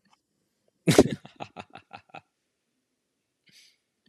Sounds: Laughter